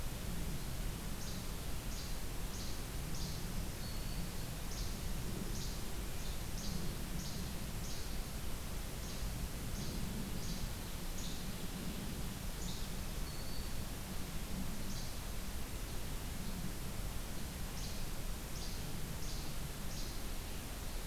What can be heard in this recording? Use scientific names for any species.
Empidonax minimus, Setophaga virens